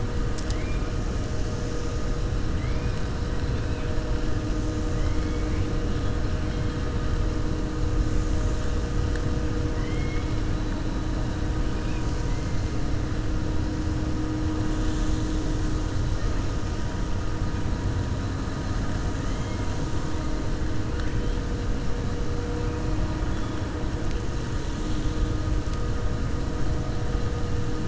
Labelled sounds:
4.9	5.7	killer whale, 2.0 to 4.3 kHz

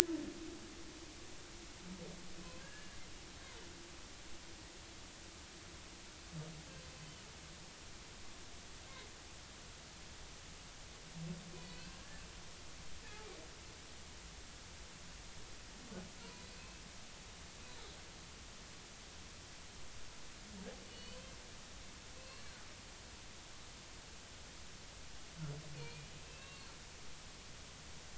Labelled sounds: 2.6	3.0	humpback whale, 1.5 to 2.9 kHz
7.0	7.2	humpback whale, 2.8 to 3.1 kHz
11.5	12.2	humpback whale, 1.6 to 2.7 kHz
16.6	16.8	humpback whale, 2.5 to 2.7 kHz
20.9	21.2	humpback whale, 2.9 to 4.6 kHz
22.2	22.5	humpback whale, 2.6 to 4.4 kHz
25.7	26.7	humpback whale, 1.0 to 2.8 kHz

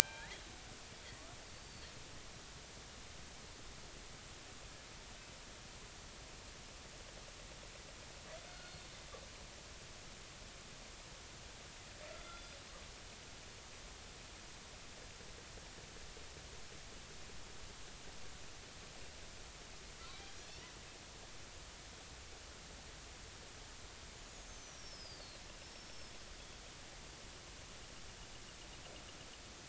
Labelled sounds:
0.0	0.4	killer whale, northern resident, G clan, 0.80 to 4.1 kHz
1.0	2.0	killer whale, northern resident, G clan, 1.5 to 4.7 kHz
8.5	8.7	killer whale, northern resident, G clan, 1.3 to 1.5 kHz
24.2	25.4	killer whale, northern resident, G clan, 4.1 to 6.9 kHz
25.7	26.1	killer whale, northern resident, G clan, 5.1 to 5.6 kHz

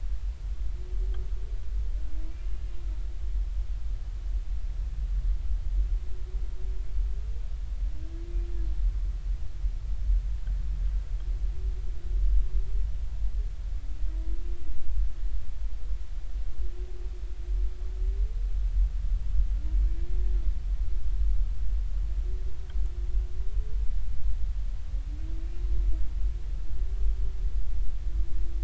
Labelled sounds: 2.2	2.5	humpback whale, 2.2 to 2.5 kHz

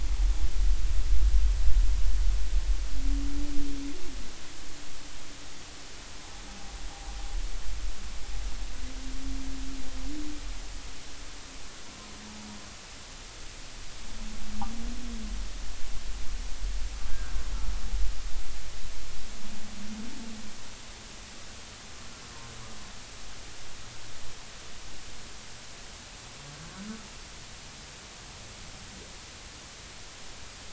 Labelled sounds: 17.1	17.3	humpback whale, 1.4 to 1.7 kHz

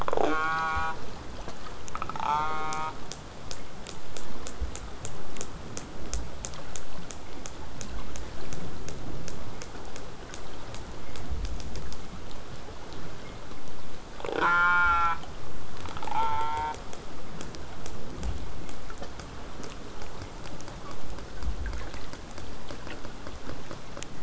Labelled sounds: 0.0	1.0	killer whale, southern resident, J pod, call S04, 0.12 to 8.0 kHz
1.9	2.9	killer whale, southern resident, J pod, call S04, 0.42 to 6.5 kHz
14.2	15.2	killer whale, southern resident, J pod, call S04, 0.17 to 8.0 kHz
16.0	16.8	killer whale, southern resident, J pod, call S04, 0.33 to 4.4 kHz
16.9	21.9	vessel noise, 0 to 8.0 kHz

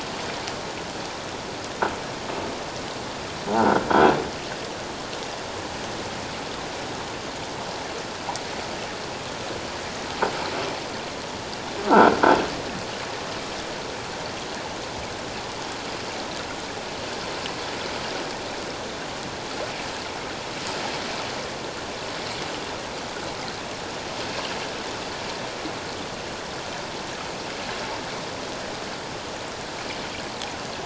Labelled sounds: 3.6	3.9	croaking sound likely from a nearby submerged object, 1.3 to 1.5 kHz
11.9	12.1	croaking sound likely from a nearby submerged object, 1.3 to 1.6 kHz

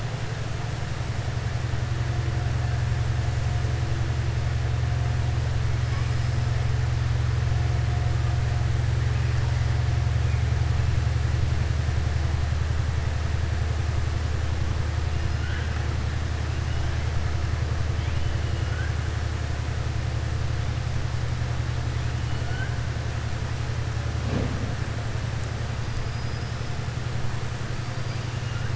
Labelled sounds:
26.0	26.6	killer whale, southern resident, 4.9 to 5.3 kHz

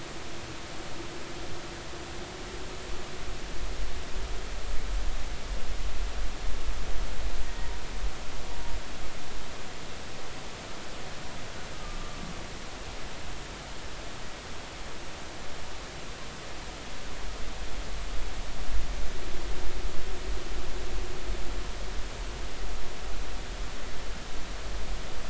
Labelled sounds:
7.5	7.7	humpback whale, 1.8 to 1.9 kHz

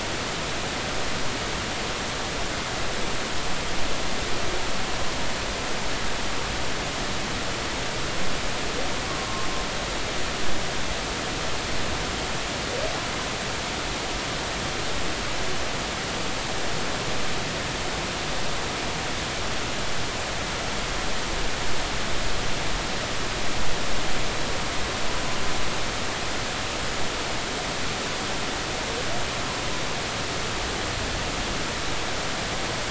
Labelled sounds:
9.1	9.5	humpback whale, 1.0 to 1.2 kHz

